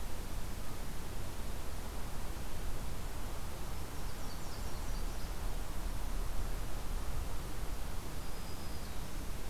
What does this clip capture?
Nashville Warbler, Black-throated Green Warbler